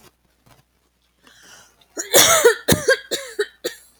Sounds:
Cough